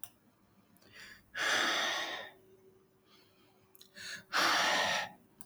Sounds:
Sigh